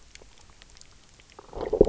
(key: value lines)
label: biophony, low growl
recorder: SoundTrap 300